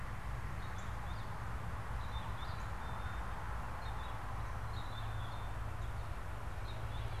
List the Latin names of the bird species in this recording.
Haemorhous purpureus, Poecile atricapillus